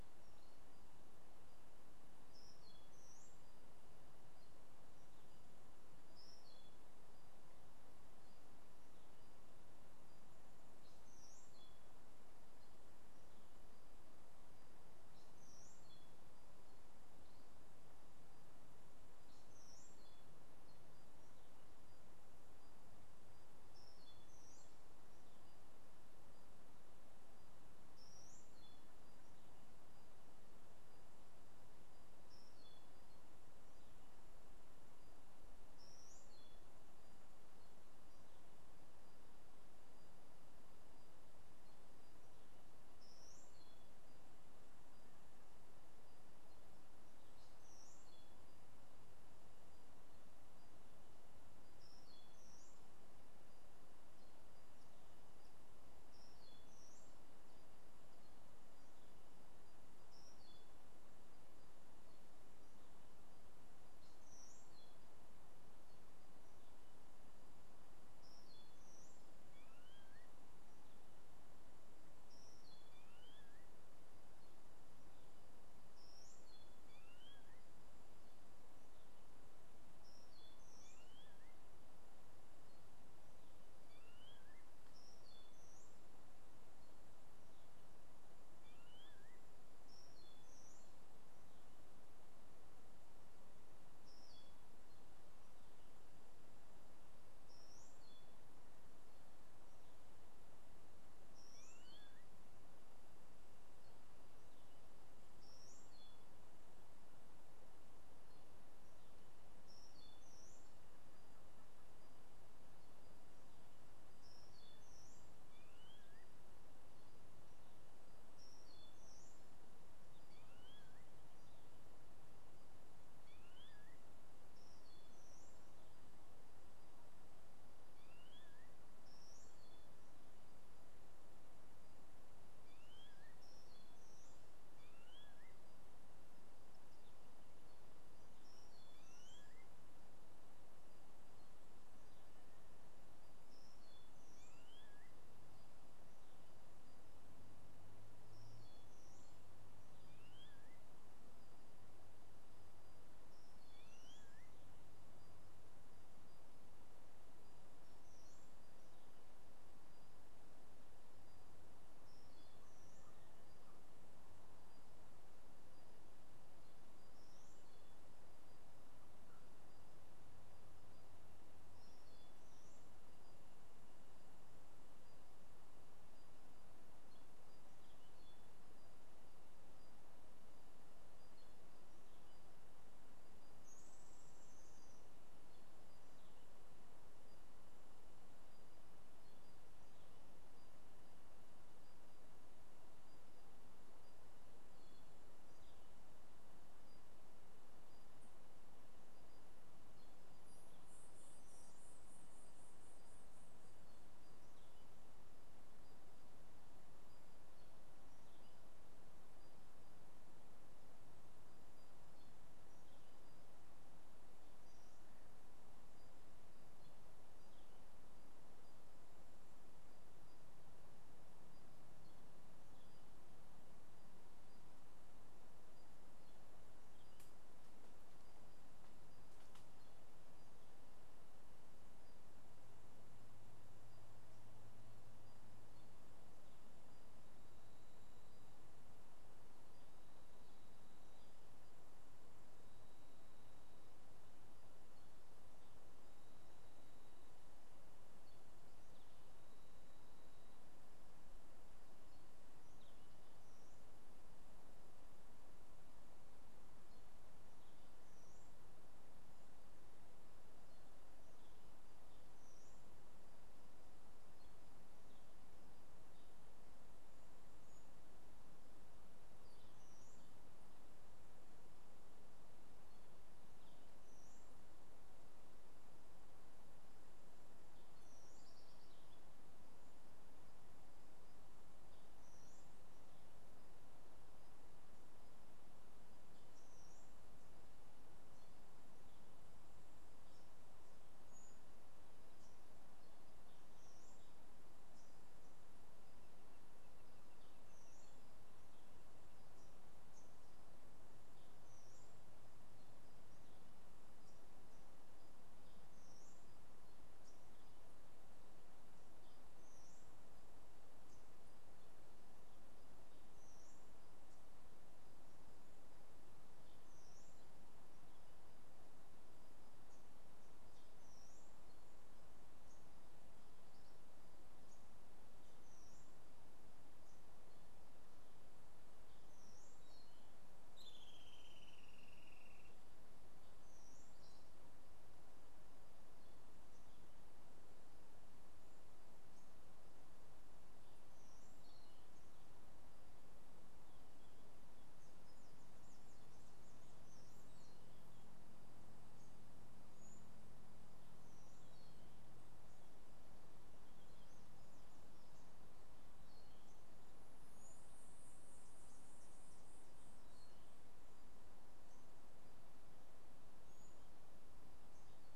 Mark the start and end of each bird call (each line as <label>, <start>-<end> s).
Streak-headed Woodcreeper (Lepidocolaptes souleyetii), 330.6-332.5 s